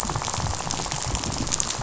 {"label": "biophony, rattle", "recorder": "SoundTrap 500"}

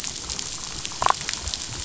{"label": "biophony, damselfish", "recorder": "SoundTrap 500"}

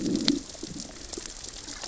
{"label": "biophony, growl", "recorder": "SoundTrap 600 or HydroMoth"}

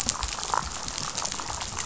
{"label": "biophony, damselfish", "recorder": "SoundTrap 500"}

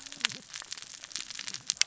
{"label": "biophony, cascading saw", "recorder": "SoundTrap 600 or HydroMoth"}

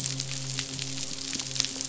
{"label": "biophony, midshipman", "recorder": "SoundTrap 500"}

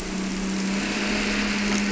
{"label": "anthrophony, boat engine", "recorder": "SoundTrap 300"}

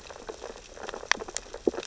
{"label": "biophony, sea urchins (Echinidae)", "recorder": "SoundTrap 600 or HydroMoth"}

